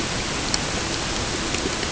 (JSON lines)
{"label": "ambient", "recorder": "HydroMoth"}